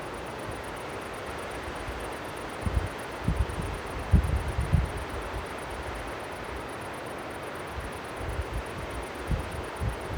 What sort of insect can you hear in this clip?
orthopteran